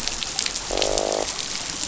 {"label": "biophony, croak", "recorder": "SoundTrap 500"}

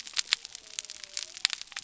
{"label": "biophony", "recorder": "SoundTrap 300"}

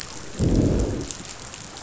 {"label": "biophony, growl", "recorder": "SoundTrap 500"}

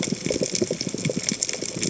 {"label": "biophony, chatter", "recorder": "HydroMoth"}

